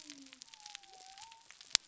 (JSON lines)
{"label": "biophony", "recorder": "SoundTrap 300"}